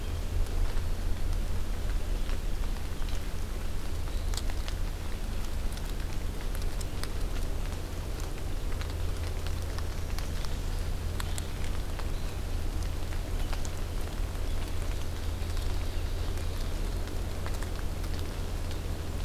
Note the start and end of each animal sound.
14.9s-17.0s: Ovenbird (Seiurus aurocapilla)

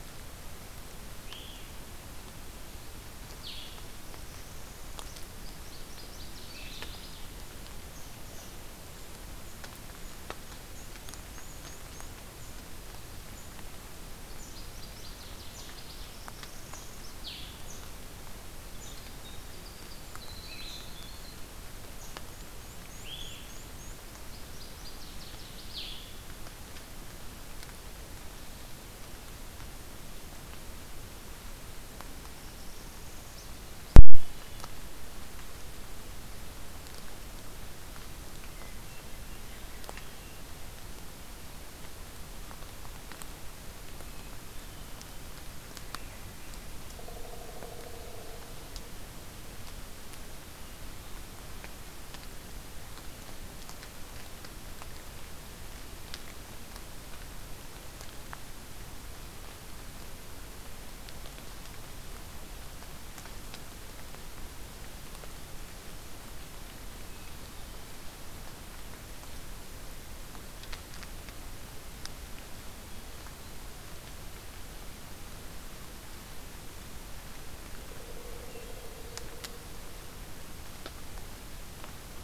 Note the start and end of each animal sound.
1.1s-1.7s: Blue-headed Vireo (Vireo solitarius)
3.2s-3.8s: Blue-headed Vireo (Vireo solitarius)
3.9s-5.3s: Northern Parula (Setophaga americana)
5.4s-7.4s: Northern Waterthrush (Parkesia noveboracensis)
10.5s-12.1s: Black-and-white Warbler (Mniotilta varia)
14.2s-16.2s: Northern Waterthrush (Parkesia noveboracensis)
15.8s-17.3s: Northern Parula (Setophaga americana)
17.1s-17.6s: Blue-headed Vireo (Vireo solitarius)
18.7s-21.5s: Winter Wren (Troglodytes hiemalis)
22.1s-24.1s: Black-and-white Warbler (Mniotilta varia)
22.9s-23.6s: Blue-headed Vireo (Vireo solitarius)
24.1s-25.9s: Northern Waterthrush (Parkesia noveboracensis)
25.5s-26.2s: Blue-headed Vireo (Vireo solitarius)
32.1s-33.6s: Northern Parula (Setophaga americana)

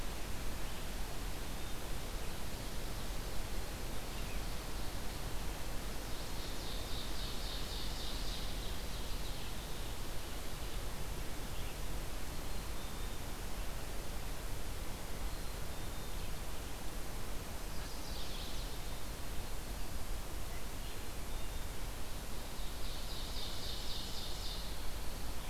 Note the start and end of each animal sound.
5.7s-6.7s: Chestnut-sided Warbler (Setophaga pensylvanica)
6.0s-9.7s: Ovenbird (Seiurus aurocapilla)
12.1s-13.3s: Black-capped Chickadee (Poecile atricapillus)
15.1s-16.3s: Black-capped Chickadee (Poecile atricapillus)
17.6s-18.8s: Chestnut-sided Warbler (Setophaga pensylvanica)
20.7s-21.7s: Black-capped Chickadee (Poecile atricapillus)
22.6s-24.9s: Ovenbird (Seiurus aurocapilla)

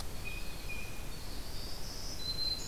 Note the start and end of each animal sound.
0.0s-1.0s: Blue Jay (Cyanocitta cristata)
0.0s-2.7s: Winter Wren (Troglodytes hiemalis)
1.2s-2.7s: Black-throated Green Warbler (Setophaga virens)

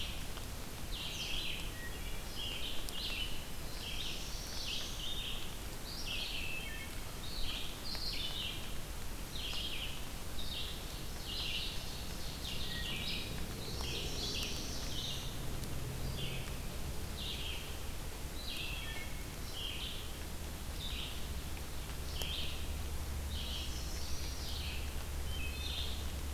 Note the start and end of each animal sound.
0.0s-26.3s: Red-eyed Vireo (Vireo olivaceus)
1.5s-2.4s: Wood Thrush (Hylocichla mustelina)
3.4s-5.4s: Black-throated Blue Warbler (Setophaga caerulescens)
6.4s-7.0s: Wood Thrush (Hylocichla mustelina)
12.5s-13.1s: Wood Thrush (Hylocichla mustelina)
13.4s-15.5s: Black-throated Blue Warbler (Setophaga caerulescens)
18.5s-19.3s: Wood Thrush (Hylocichla mustelina)
23.1s-24.8s: Chestnut-sided Warbler (Setophaga pensylvanica)
25.1s-26.2s: Wood Thrush (Hylocichla mustelina)

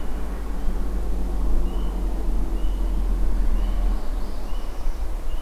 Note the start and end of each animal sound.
3.8s-5.1s: Northern Parula (Setophaga americana)

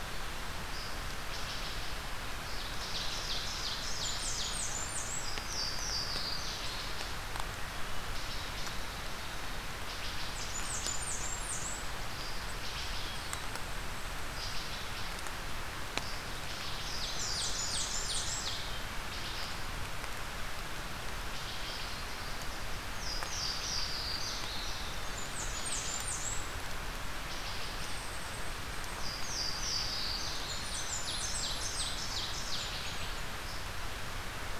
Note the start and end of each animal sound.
0.0s-13.2s: Wood Thrush (Hylocichla mustelina)
2.6s-4.8s: Ovenbird (Seiurus aurocapilla)
3.7s-5.3s: Blackburnian Warbler (Setophaga fusca)
5.4s-7.1s: Louisiana Waterthrush (Parkesia motacilla)
10.2s-11.9s: Blackburnian Warbler (Setophaga fusca)
14.4s-28.0s: Wood Thrush (Hylocichla mustelina)
16.7s-18.8s: Ovenbird (Seiurus aurocapilla)
16.8s-18.5s: Blackburnian Warbler (Setophaga fusca)
22.9s-24.9s: Louisiana Waterthrush (Parkesia motacilla)
25.0s-26.7s: Blackburnian Warbler (Setophaga fusca)
28.8s-30.6s: Louisiana Waterthrush (Parkesia motacilla)
30.2s-32.0s: Blackburnian Warbler (Setophaga fusca)
30.5s-32.8s: Ovenbird (Seiurus aurocapilla)
32.4s-33.1s: Blackburnian Warbler (Setophaga fusca)

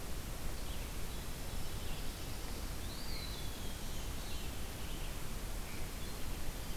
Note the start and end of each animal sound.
0.0s-6.8s: Red-eyed Vireo (Vireo olivaceus)
1.2s-2.8s: Black-throated Blue Warbler (Setophaga caerulescens)
2.7s-3.8s: Eastern Wood-Pewee (Contopus virens)
3.5s-5.2s: Veery (Catharus fuscescens)

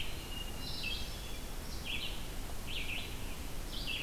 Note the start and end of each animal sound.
0.0s-4.0s: Red-eyed Vireo (Vireo olivaceus)
0.2s-1.6s: Hermit Thrush (Catharus guttatus)

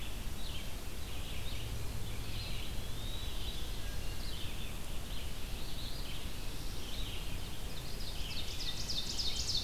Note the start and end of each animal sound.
0.0s-9.6s: Red-eyed Vireo (Vireo olivaceus)
2.2s-3.3s: Eastern Wood-Pewee (Contopus virens)
3.6s-4.6s: Wood Thrush (Hylocichla mustelina)
7.8s-9.6s: Ovenbird (Seiurus aurocapilla)

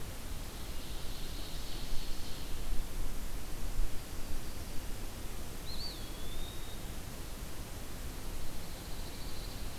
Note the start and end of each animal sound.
0.3s-2.8s: Ovenbird (Seiurus aurocapilla)
3.6s-4.9s: Yellow-rumped Warbler (Setophaga coronata)
5.5s-7.0s: Eastern Wood-Pewee (Contopus virens)
8.0s-9.8s: Pine Warbler (Setophaga pinus)

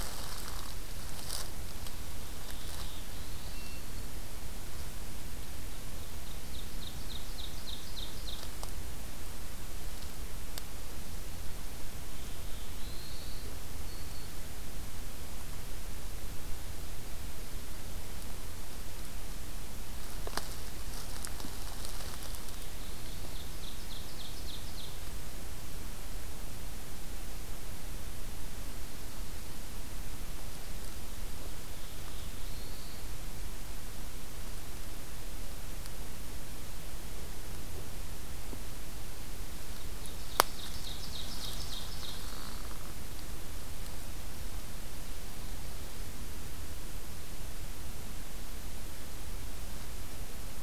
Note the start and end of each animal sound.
2.4s-3.9s: Black-throated Blue Warbler (Setophaga caerulescens)
6.0s-8.6s: Ovenbird (Seiurus aurocapilla)
11.9s-13.6s: Black-throated Blue Warbler (Setophaga caerulescens)
13.7s-14.4s: Black-throated Green Warbler (Setophaga virens)
22.5s-25.1s: Ovenbird (Seiurus aurocapilla)
31.6s-33.1s: Black-throated Blue Warbler (Setophaga caerulescens)
39.6s-42.5s: Ovenbird (Seiurus aurocapilla)

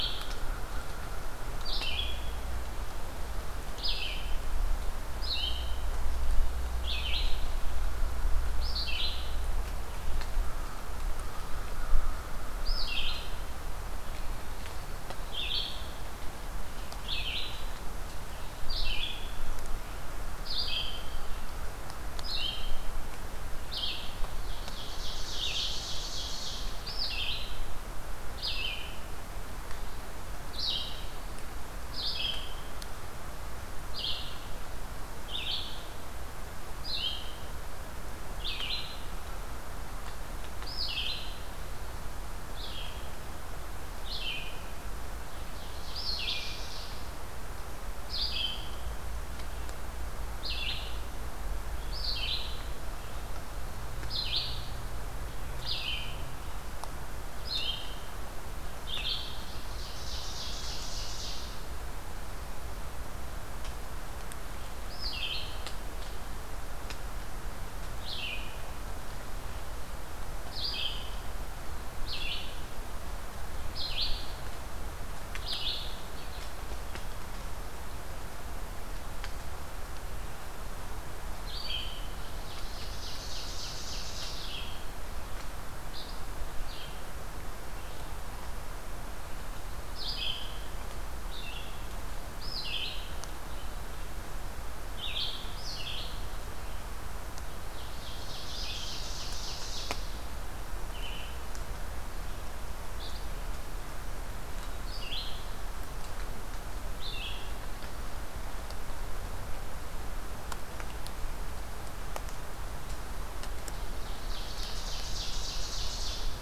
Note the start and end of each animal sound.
0.0s-52.7s: Red-eyed Vireo (Vireo olivaceus)
10.3s-13.3s: American Crow (Corvus brachyrhynchos)
24.4s-26.8s: Ovenbird (Seiurus aurocapilla)
45.2s-47.1s: Ovenbird (Seiurus aurocapilla)
54.0s-59.3s: Red-eyed Vireo (Vireo olivaceus)
59.3s-61.6s: Ovenbird (Seiurus aurocapilla)
64.8s-75.9s: Red-eyed Vireo (Vireo olivaceus)
81.4s-107.6s: Red-eyed Vireo (Vireo olivaceus)
82.4s-84.8s: Ovenbird (Seiurus aurocapilla)
97.7s-100.0s: Ovenbird (Seiurus aurocapilla)
113.7s-116.4s: Ovenbird (Seiurus aurocapilla)

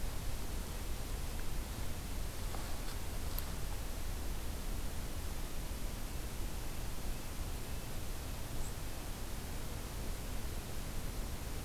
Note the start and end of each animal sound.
6.0s-9.4s: Red-breasted Nuthatch (Sitta canadensis)

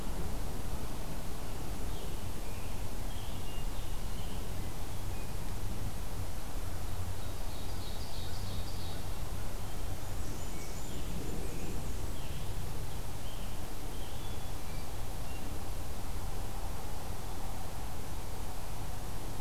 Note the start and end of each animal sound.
1.3s-4.6s: Scarlet Tanager (Piranga olivacea)
3.1s-4.1s: Hermit Thrush (Catharus guttatus)
7.0s-9.0s: Ovenbird (Seiurus aurocapilla)
9.5s-10.8s: Hermit Thrush (Catharus guttatus)
9.9s-12.1s: Blackburnian Warbler (Setophaga fusca)
10.7s-14.3s: Scarlet Tanager (Piranga olivacea)
14.1s-15.5s: Hermit Thrush (Catharus guttatus)

